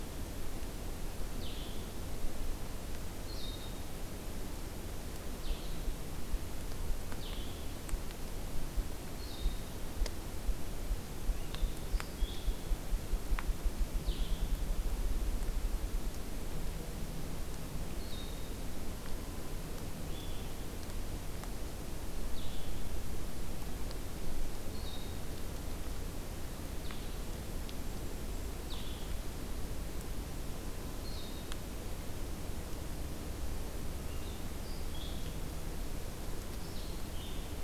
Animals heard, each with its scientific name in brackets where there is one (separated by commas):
Blue-headed Vireo (Vireo solitarius), Brown Creeper (Certhia americana)